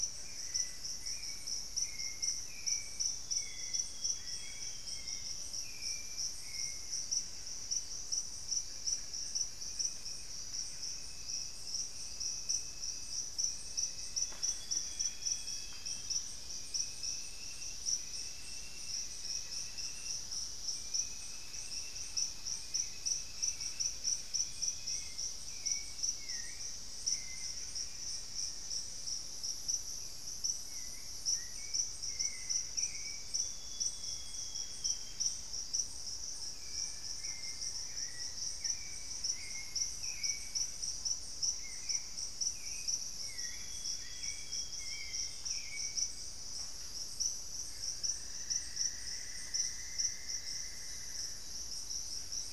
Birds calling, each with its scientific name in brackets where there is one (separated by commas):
Solitary Black Cacique (Cacicus solitarius), Black-faced Antthrush (Formicarius analis), Grayish Mourner (Rhytipterna simplex), Hauxwell's Thrush (Turdus hauxwelli), Amazonian Grosbeak (Cyanoloxia rothschildii), Elegant Woodcreeper (Xiphorhynchus elegans), Thrush-like Wren (Campylorhynchus turdinus), Cinnamon-throated Woodcreeper (Dendrexetastes rufigula)